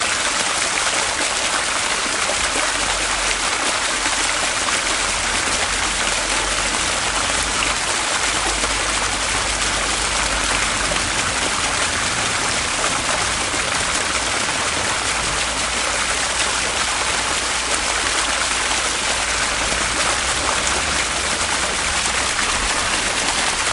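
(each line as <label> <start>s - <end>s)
Heavy rain splashes down on a large puddle of water outdoors. 0.0s - 23.7s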